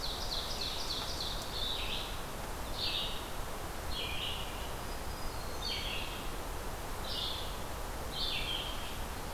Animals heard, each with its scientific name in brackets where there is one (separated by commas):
Ovenbird (Seiurus aurocapilla), Red-eyed Vireo (Vireo olivaceus), Black-throated Green Warbler (Setophaga virens)